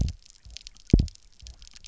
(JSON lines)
{"label": "biophony, double pulse", "recorder": "SoundTrap 300"}